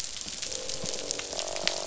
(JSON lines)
{"label": "biophony, croak", "recorder": "SoundTrap 500"}